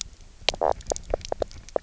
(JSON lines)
{"label": "biophony, knock croak", "recorder": "SoundTrap 300"}